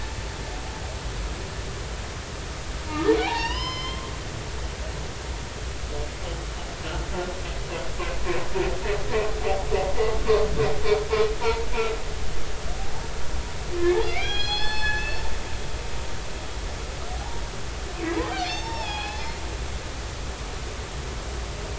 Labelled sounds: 3.2	4.1	humpback whale, 0.80 to 5.4 kHz
11.4	11.7	humpback whale, 0.86 to 1.0 kHz
13.8	17.4	humpback whale, 0.80 to 5.2 kHz
18.2	19.2	humpback whale, 0.80 to 5.5 kHz

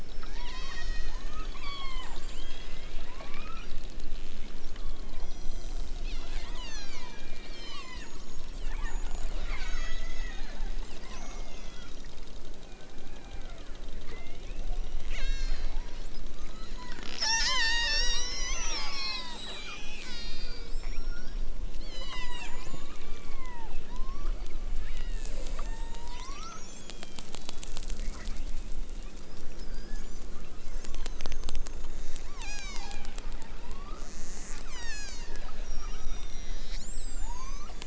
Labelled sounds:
0.0	2.8	killer whale, southern Alaska resident, 0.41 to 8.0 kHz
3.0	3.8	killer whale, southern Alaska resident, 0.64 to 3.5 kHz
4.7	8.1	killer whale, southern Alaska resident, 0.69 to 8.0 kHz
8.4	9.0	killer whale, southern Alaska resident, 1.3 to 5.0 kHz
9.3	10.6	killer whale, southern Alaska resident, 0.78 to 7.6 kHz
10.9	12.2	killer whale, southern Alaska resident, 1.6 to 7.2 kHz
12.5	15.8	killer whale, southern Alaska resident, 0.64 to 8.0 kHz
16.6	19.3	killer whale, southern Alaska resident, 0.41 to 8.0 kHz
19.9	21.5	killer whale, southern Alaska resident, 0.60 to 8.0 kHz
21.8	24.5	killer whale, southern Alaska resident, 0.46 to 8.0 kHz
24.8	27.7	killer whale, southern Alaska resident, 0.50 to 8.0 kHz
28.0	28.5	killer whale, southern Alaska resident, 0.87 to 3.6 kHz
30.8	31.3	killer whale, southern Alaska resident, 0.64 to 4.9 kHz
32.2	34.1	killer whale, southern Alaska resident, 0.46 to 8.0 kHz
34.6	37.8	killer whale, southern Alaska resident, 0.50 to 8.0 kHz

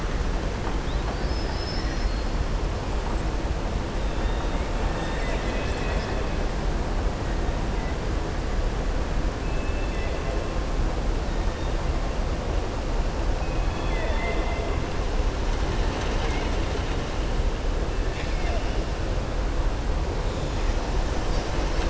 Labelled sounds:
0.8	2.3	killer whale, southern resident, 3.4 to 5.9 kHz
4.8	6.2	killer whale, southern resident, 1.7 to 7.7 kHz
9.5	10.2	killer whale, southern resident, 1.8 to 3.6 kHz
13.6	14.7	killer whale, southern resident, 0.46 to 3.6 kHz
18.0	18.6	killer whale, southern resident, 0.70 to 4.4 kHz

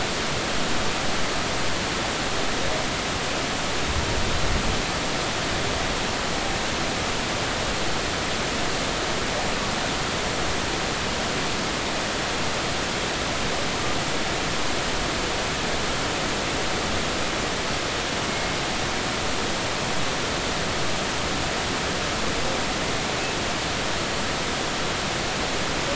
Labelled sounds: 18.3	18.5	humpback whale, 2.1 to 2.2 kHz

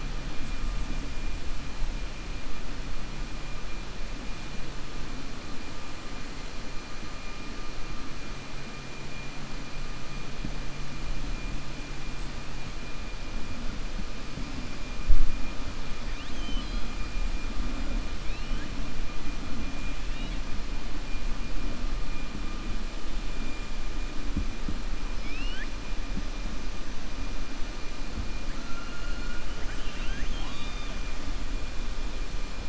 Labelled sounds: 16.0	16.9	killer whale, 1.8 to 6.3 kHz
25.1	25.7	killer whale, 1.4 to 5.4 kHz
29.5	31.0	killer whale, 0.81 to 4.8 kHz

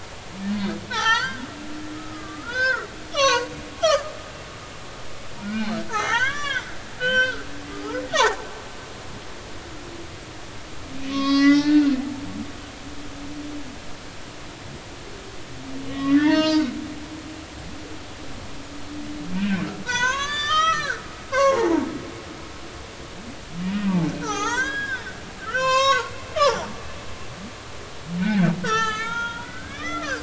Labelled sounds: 0.9	1.4	humpback whale, 0.80 to 6.4 kHz
1.9	4.1	humpback whale, 0.90 to 6.2 kHz
5.4	6.7	humpback whale, 0.80 to 7.0 kHz
7.0	8.4	humpback whale, 0.80 to 5.7 kHz
11.1	11.9	humpback whale, 1.0 to 6.2 kHz
15.9	16.7	humpback whale, 0.86 to 6.4 kHz
19.3	21.0	humpback whale, 0.90 to 7.1 kHz
21.3	21.9	humpback whale, 0.80 to 2.8 kHz
23.6	25.1	humpback whale, 0.80 to 6.8 kHz
25.4	26.7	humpback whale, 0.80 to 8.0 kHz
28.2	30.2	humpback whale, 0.83 to 6.8 kHz

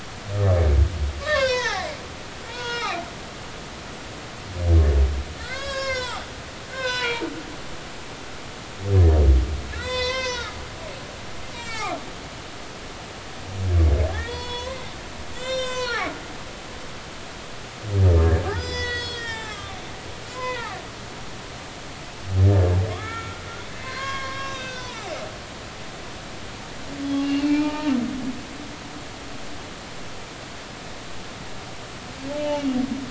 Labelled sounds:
1.2	3.0	humpback whale, 0.80 to 6.7 kHz
5.4	6.3	humpback whale, 0.80 to 8.0 kHz
6.7	7.3	humpback whale, 0.86 to 5.3 kHz
9.7	10.6	humpback whale, 0.86 to 8.0 kHz
11.5	12.0	humpback whale, 0.80 to 5.7 kHz
14.1	14.9	humpback whale, 0.90 to 7.9 kHz
15.3	17.1	humpback whale, 0.80 to 7.9 kHz
18.5	19.8	humpback whale, 0.80 to 8.0 kHz
20.3	20.8	humpback whale, 0.80 to 5.2 kHz
22.5	25.0	humpback whale, 0.86 to 6.3 kHz
27.2	27.9	humpback whale, 0.83 to 2.9 kHz
32.4	32.8	humpback whale, 2.8 to 3.0 kHz

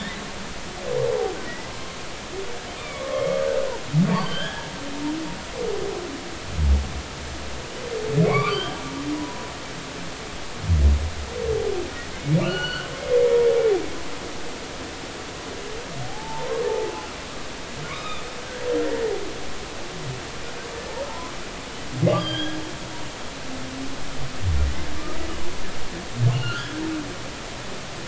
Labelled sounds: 1.4	1.7	humpback whale, 1.9 to 2.0 kHz
2.8	3.4	humpback whale, 1.0 to 2.5 kHz
4.2	4.7	humpback whale, 1.4 to 3.4 kHz
8.3	9.4	humpback whale, 0.93 to 3.4 kHz
12.4	12.9	humpback whale, 1.1 to 4.5 kHz
16.0	16.9	humpback whale, 0.80 to 1.1 kHz
17.9	18.6	humpback whale, 1.0 to 3.8 kHz
21.1	21.3	humpback whale, 0.83 to 1.1 kHz
22.1	22.6	humpback whale, 1.5 to 5.0 kHz
26.3	26.7	humpback whale, 1.3 to 4.5 kHz

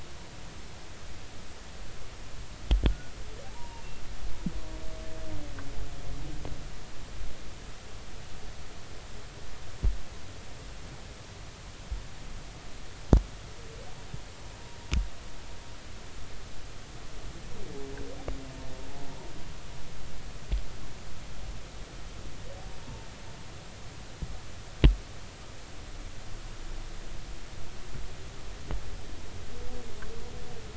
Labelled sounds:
2.9	3.8	humpback whale, 0.80 to 1.5 kHz

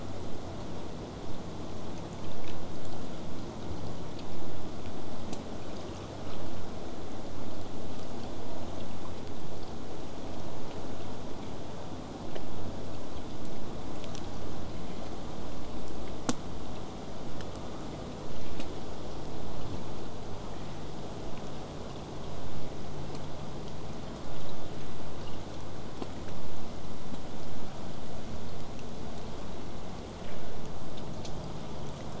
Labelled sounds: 14.7	15.4	killer whale, southern resident, 1.8 to 7.3 kHz

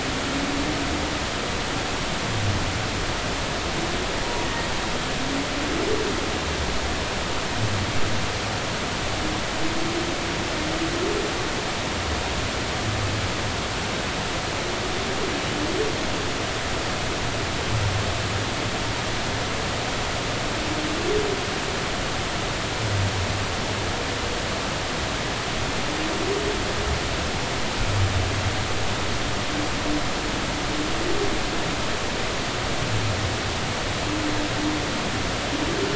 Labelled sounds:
4.4	4.7	humpback whale, 1.8 to 1.9 kHz

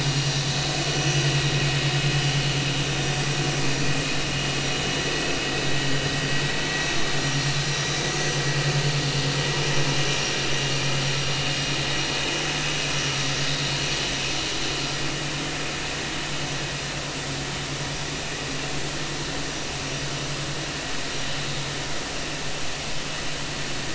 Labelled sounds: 0.9	1.1	vessel noise, 5.8 to 5.9 kHz
7.2	7.5	vessel noise, 5.6 to 5.7 kHz

